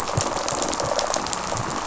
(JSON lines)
{"label": "biophony, rattle response", "recorder": "SoundTrap 500"}